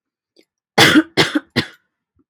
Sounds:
Cough